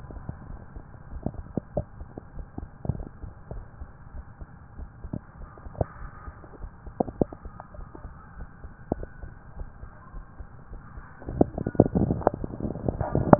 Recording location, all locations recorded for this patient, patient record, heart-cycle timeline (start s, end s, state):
tricuspid valve (TV)
aortic valve (AV)+pulmonary valve (PV)+tricuspid valve (TV)+mitral valve (MV)
#Age: Child
#Sex: Male
#Height: 153.0 cm
#Weight: 79.9 kg
#Pregnancy status: False
#Murmur: Absent
#Murmur locations: nan
#Most audible location: nan
#Systolic murmur timing: nan
#Systolic murmur shape: nan
#Systolic murmur grading: nan
#Systolic murmur pitch: nan
#Systolic murmur quality: nan
#Diastolic murmur timing: nan
#Diastolic murmur shape: nan
#Diastolic murmur grading: nan
#Diastolic murmur pitch: nan
#Diastolic murmur quality: nan
#Outcome: Abnormal
#Campaign: 2015 screening campaign
0.00	1.09	unannotated
1.09	1.24	S1
1.24	1.36	systole
1.36	1.46	S2
1.46	1.76	diastole
1.76	1.86	S1
1.86	1.98	systole
1.98	2.08	S2
2.08	2.34	diastole
2.34	2.46	S1
2.46	2.57	systole
2.57	2.68	S2
2.68	2.88	diastole
2.88	3.02	S1
3.02	3.19	systole
3.19	3.32	S2
3.32	3.54	diastole
3.54	3.64	S1
3.64	3.78	systole
3.78	3.90	S2
3.90	4.14	diastole
4.14	4.26	S1
4.26	4.39	systole
4.39	4.50	S2
4.50	4.76	diastole
4.76	4.90	S1
4.90	5.02	systole
5.02	5.13	S2
5.13	5.38	diastole
5.38	5.48	S1
5.48	5.63	systole
5.63	5.73	S2
5.73	6.00	diastole
6.00	6.10	S1
6.10	6.25	systole
6.25	6.35	S2
6.35	6.59	diastole
6.59	6.72	S1
6.72	6.84	systole
6.84	6.94	S2
6.94	13.39	unannotated